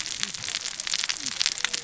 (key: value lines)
label: biophony, cascading saw
recorder: SoundTrap 600 or HydroMoth